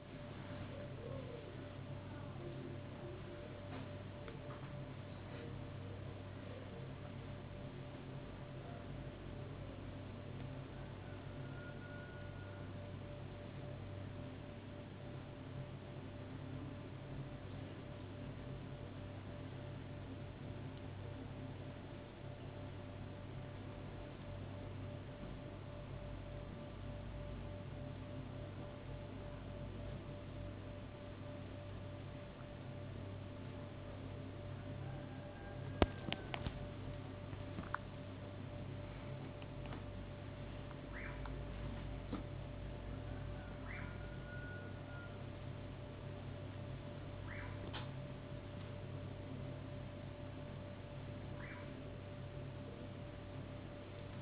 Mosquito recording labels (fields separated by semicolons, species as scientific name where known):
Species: no mosquito; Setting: insect culture